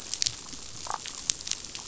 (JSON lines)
{"label": "biophony, damselfish", "recorder": "SoundTrap 500"}